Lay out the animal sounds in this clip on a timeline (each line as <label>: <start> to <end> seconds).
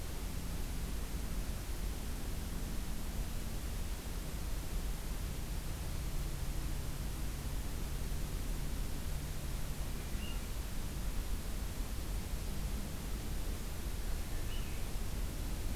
Swainson's Thrush (Catharus ustulatus): 9.7 to 10.6 seconds
Swainson's Thrush (Catharus ustulatus): 13.9 to 14.9 seconds